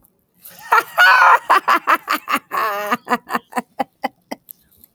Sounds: Laughter